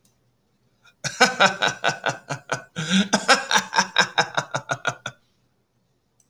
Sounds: Laughter